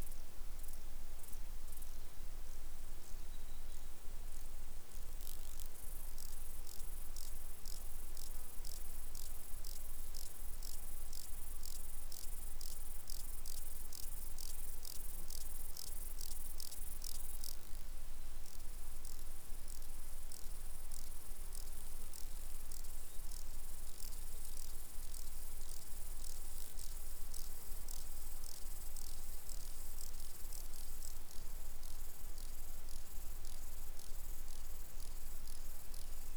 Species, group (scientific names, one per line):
Stauroderus scalaris
Orthoptera